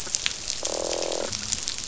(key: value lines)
label: biophony, croak
recorder: SoundTrap 500